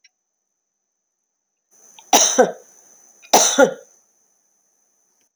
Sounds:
Cough